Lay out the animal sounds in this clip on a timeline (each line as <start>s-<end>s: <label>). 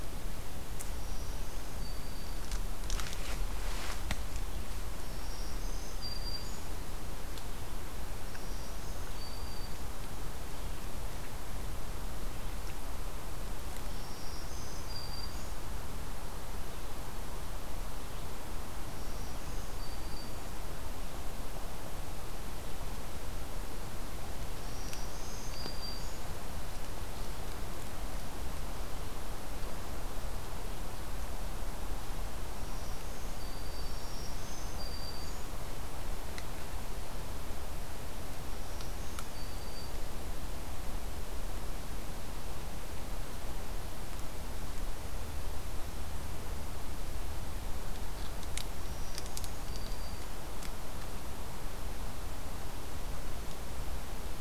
0.8s-2.5s: Black-throated Green Warbler (Setophaga virens)
5.0s-6.8s: Black-throated Green Warbler (Setophaga virens)
8.2s-9.9s: Black-throated Green Warbler (Setophaga virens)
13.8s-15.6s: Black-throated Green Warbler (Setophaga virens)
18.8s-20.6s: Black-throated Green Warbler (Setophaga virens)
24.5s-26.3s: Black-throated Green Warbler (Setophaga virens)
32.6s-35.7s: Black-throated Green Warbler (Setophaga virens)
38.4s-40.0s: Black-throated Green Warbler (Setophaga virens)
48.7s-50.4s: Black-throated Green Warbler (Setophaga virens)